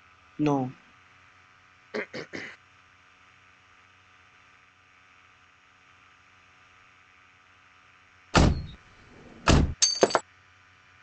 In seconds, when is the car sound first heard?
8.3 s